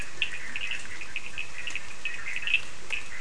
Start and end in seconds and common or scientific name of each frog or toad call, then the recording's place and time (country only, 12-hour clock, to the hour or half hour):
0.0	0.7	Leptodactylus latrans
0.0	3.2	Bischoff's tree frog
0.0	3.2	Cochran's lime tree frog
Brazil, 10:30pm